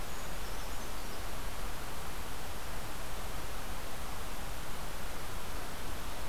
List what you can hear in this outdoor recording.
Brown Creeper